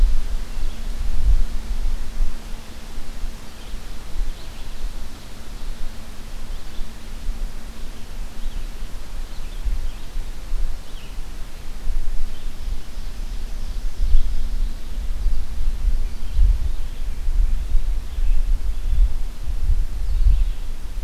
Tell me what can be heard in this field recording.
Red-eyed Vireo, Ovenbird